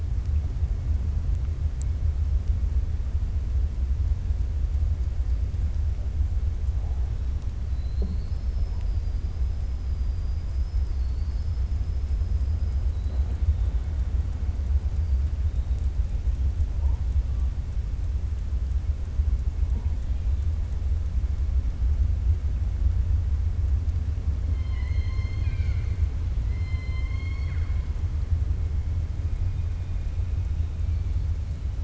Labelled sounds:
7.6	9.3	killer whale, 3.9 to 5.3 kHz
12.8	13.3	killer whale, 3.1 to 4.2 kHz
24.5	26.0	killer whale, 1.0 to 6.6 kHz
26.4	27.8	killer whale, 1.1 to 5.4 kHz

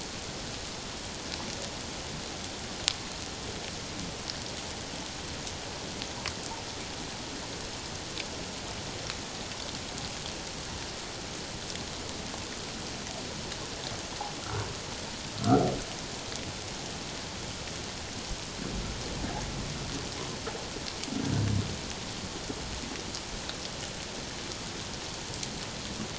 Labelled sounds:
15.4	15.6	humpback whale, 1.1 to 1.5 kHz

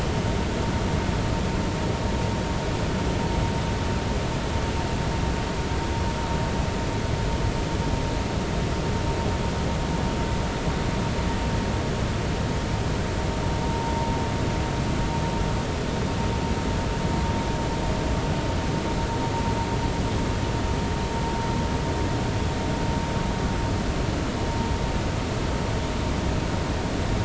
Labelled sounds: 13.6	13.9	vessel noise, 0.90 to 0.99 kHz

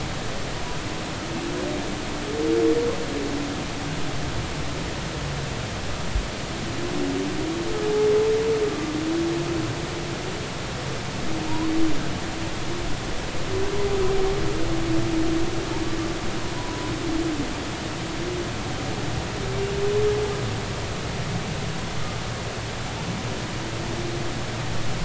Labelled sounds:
16.6	16.9	humpback whale, 0.93 to 1.0 kHz

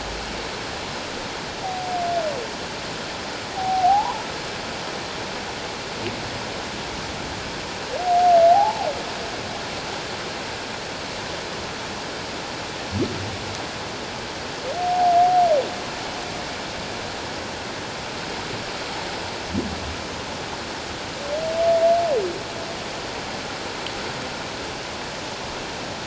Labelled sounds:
3.5	4.3	humpback whale, 0.78 to 1.2 kHz
8.5	8.9	humpback whale, 0.78 to 0.97 kHz
14.8	15.1	humpback whale, 0.78 to 0.84 kHz

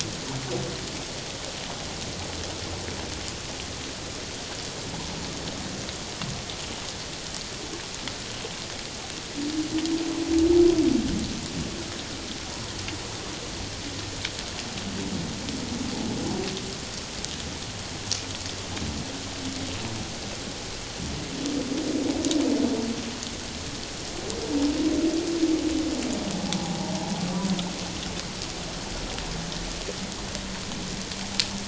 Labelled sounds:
26.6	27.0	humpback whale, 0.78 to 1.0 kHz

